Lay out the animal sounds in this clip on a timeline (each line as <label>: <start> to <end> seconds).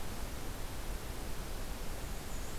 Black-and-white Warbler (Mniotilta varia): 1.9 to 2.6 seconds